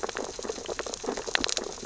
{"label": "biophony, sea urchins (Echinidae)", "recorder": "SoundTrap 600 or HydroMoth"}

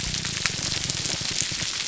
{"label": "biophony, grouper groan", "recorder": "SoundTrap 300"}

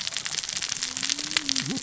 {"label": "biophony, cascading saw", "recorder": "SoundTrap 600 or HydroMoth"}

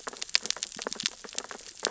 {"label": "biophony, sea urchins (Echinidae)", "recorder": "SoundTrap 600 or HydroMoth"}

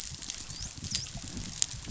{"label": "biophony, dolphin", "recorder": "SoundTrap 500"}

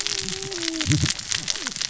{"label": "biophony, cascading saw", "recorder": "SoundTrap 600 or HydroMoth"}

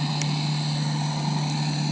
{"label": "anthrophony, boat engine", "recorder": "HydroMoth"}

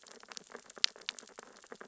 {"label": "biophony, sea urchins (Echinidae)", "recorder": "SoundTrap 600 or HydroMoth"}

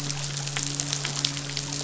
{"label": "biophony, midshipman", "recorder": "SoundTrap 500"}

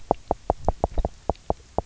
{"label": "biophony, knock", "recorder": "SoundTrap 300"}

